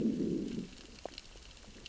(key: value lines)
label: biophony, growl
recorder: SoundTrap 600 or HydroMoth